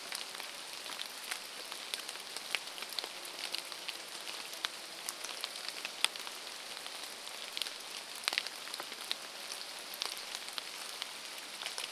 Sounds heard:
chainsaw, rain

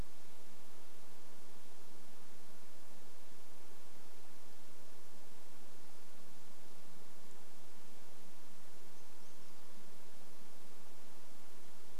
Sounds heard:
Brown Creeper song

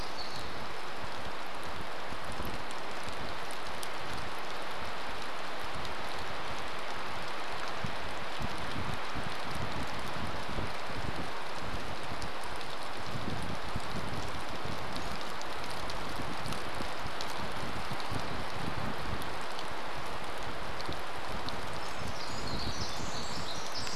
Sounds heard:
Pacific Wren song, rain, unidentified sound

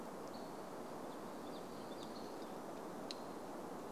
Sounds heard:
Hammond's Flycatcher call

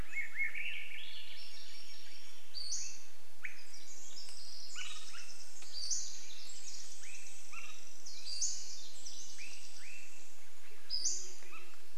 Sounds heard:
Swainson's Thrush song, Pacific Wren song, Band-tailed Pigeon song, Pacific-slope Flycatcher call, Band-tailed Pigeon call, Swainson's Thrush call

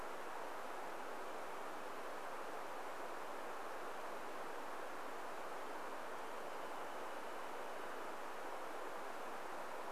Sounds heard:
Wrentit song

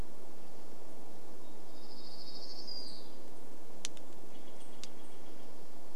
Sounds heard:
warbler song, Steller's Jay call

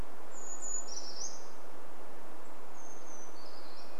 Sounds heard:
Red-breasted Nuthatch song, Brown Creeper song

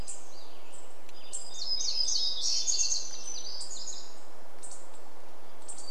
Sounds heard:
unidentified bird chip note, warbler song, Western Tanager song, Hermit Thrush song

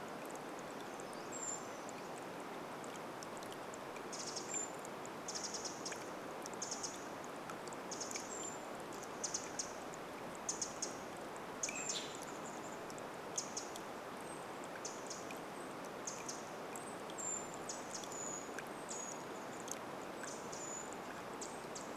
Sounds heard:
rain, Chestnut-backed Chickadee call, Brown Creeper song, Pacific Wren call, Brown Creeper call

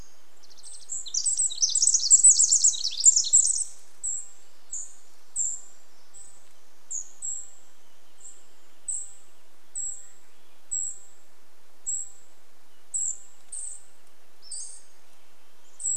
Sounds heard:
Swainson's Thrush song, Wrentit song, Cedar Waxwing call, Pacific Wren song, Pacific-slope Flycatcher call

